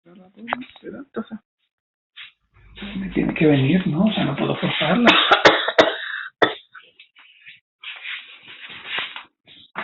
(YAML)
expert_labels:
- quality: good
  cough_type: unknown
  dyspnea: false
  wheezing: false
  stridor: false
  choking: false
  congestion: false
  nothing: true
  diagnosis: obstructive lung disease
  severity: mild
age: 42
gender: male
respiratory_condition: false
fever_muscle_pain: true
status: symptomatic